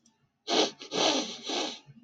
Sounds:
Sniff